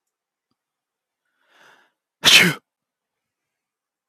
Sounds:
Sneeze